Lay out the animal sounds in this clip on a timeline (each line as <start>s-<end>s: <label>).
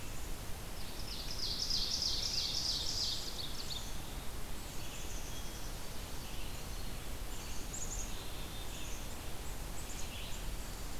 0.0s-11.0s: Red-eyed Vireo (Vireo olivaceus)
0.5s-3.8s: Ovenbird (Seiurus aurocapilla)
2.6s-3.3s: Black-capped Chickadee (Poecile atricapillus)
3.6s-4.3s: Black-capped Chickadee (Poecile atricapillus)
4.6s-5.8s: Black-capped Chickadee (Poecile atricapillus)
6.5s-7.0s: Black-capped Chickadee (Poecile atricapillus)
7.3s-11.0s: Black-capped Chickadee (Poecile atricapillus)